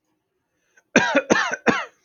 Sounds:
Cough